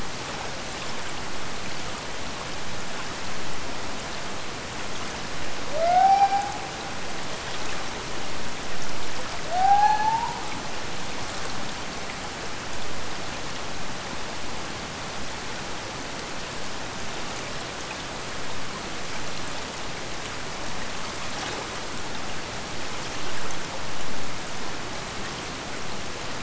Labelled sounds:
5.7	6.9	killer whale, Bigg's (transient), Gulf of Alaska transient, 0.41 to 6.0 kHz
9.4	10.7	killer whale, Bigg's (transient), Gulf of Alaska transient, 0.47 to 6.2 kHz

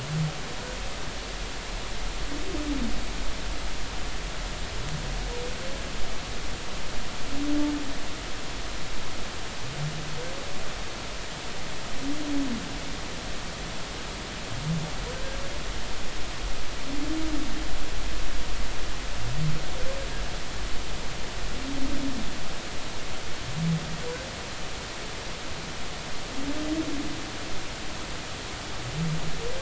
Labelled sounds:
15.1	15.4	humpback whale, 1.5 to 1.7 kHz

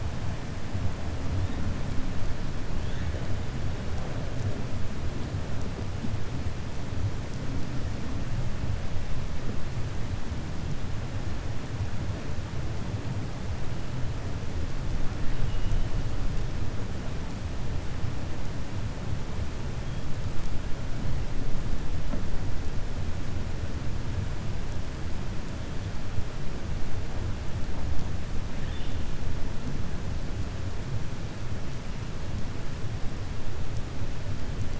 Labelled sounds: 28.5	29.0	killer whale, 1.8 to 3.9 kHz

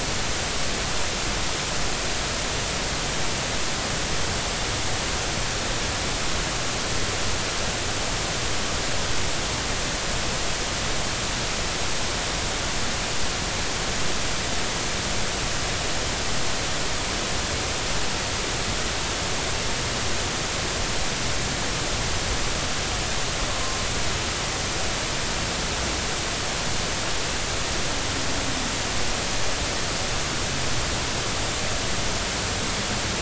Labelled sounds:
23.5	23.8	humpback whale, 0.99 to 1.2 kHz

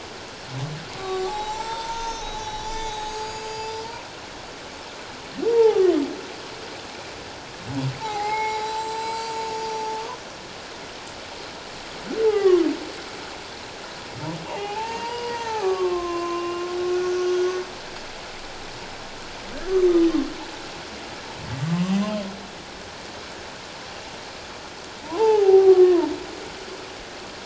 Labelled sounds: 1.3	3.9	humpback whale, 0.81 to 7.9 kHz
5.5	5.9	humpback whale, 0.78 to 0.97 kHz
8.0	9.5	humpback whale, 0.78 to 8.0 kHz
12.3	12.7	humpback whale, 0.78 to 2.1 kHz
14.4	17.3	humpback whale, 0.78 to 6.2 kHz
25.0	26.1	humpback whale, 0.78 to 1.2 kHz

